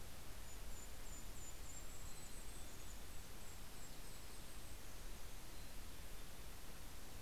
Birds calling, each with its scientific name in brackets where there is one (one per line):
Mountain Chickadee (Poecile gambeli)
Golden-crowned Kinglet (Regulus satrapa)